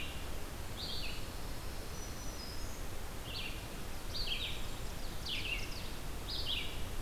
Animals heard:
Red-eyed Vireo (Vireo olivaceus), Black-throated Green Warbler (Setophaga virens), Ovenbird (Seiurus aurocapilla)

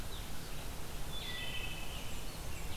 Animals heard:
Wood Thrush (Hylocichla mustelina), Red-eyed Vireo (Vireo olivaceus), Blackburnian Warbler (Setophaga fusca), American Robin (Turdus migratorius)

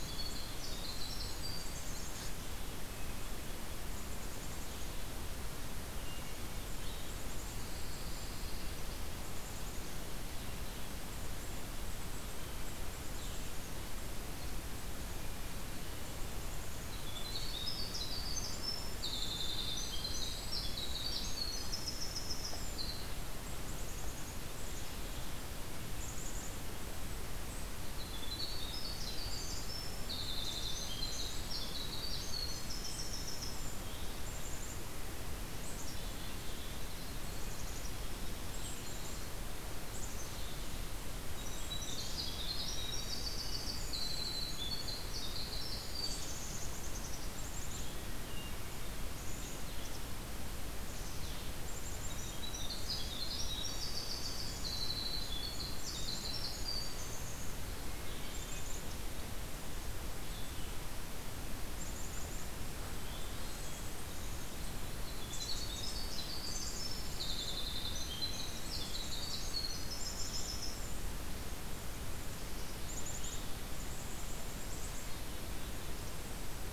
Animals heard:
Black-capped Chickadee (Poecile atricapillus), Pine Warbler (Setophaga pinus), Winter Wren (Troglodytes hiemalis), Hermit Thrush (Catharus guttatus), Golden-crowned Kinglet (Regulus satrapa)

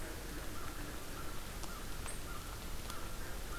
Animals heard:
American Crow (Corvus brachyrhynchos)

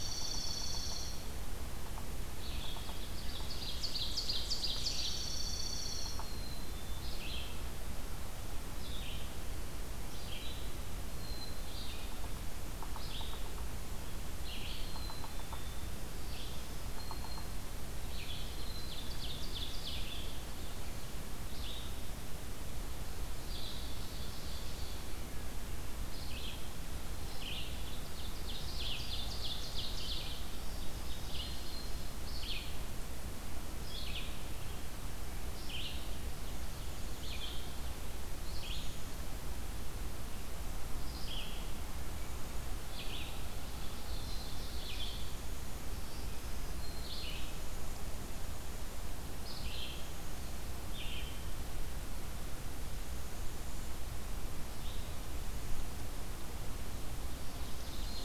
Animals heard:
Black-capped Chickadee (Poecile atricapillus), Red-eyed Vireo (Vireo olivaceus), Ovenbird (Seiurus aurocapilla), Black-throated Green Warbler (Setophaga virens), Yellow-bellied Sapsucker (Sphyrapicus varius), Dark-eyed Junco (Junco hyemalis)

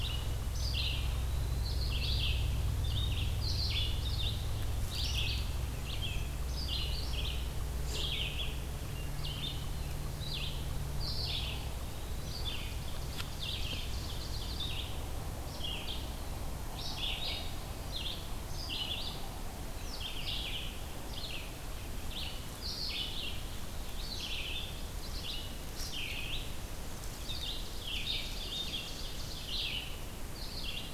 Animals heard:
Ovenbird (Seiurus aurocapilla), Red-eyed Vireo (Vireo olivaceus), Eastern Wood-Pewee (Contopus virens)

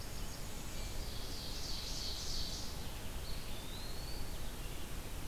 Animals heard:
Eastern Wood-Pewee (Contopus virens), Blackburnian Warbler (Setophaga fusca), Ovenbird (Seiurus aurocapilla), Red-eyed Vireo (Vireo olivaceus)

